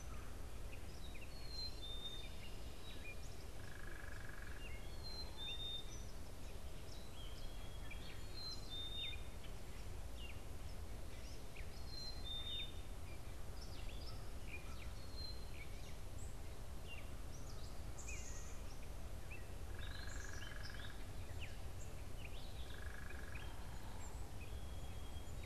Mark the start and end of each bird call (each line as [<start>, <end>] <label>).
[0.00, 15.59] Black-capped Chickadee (Poecile atricapillus)
[0.00, 25.45] Gray Catbird (Dumetella carolinensis)
[6.99, 8.29] Song Sparrow (Melospiza melodia)
[17.79, 20.69] Black-capped Chickadee (Poecile atricapillus)
[19.49, 23.59] unidentified bird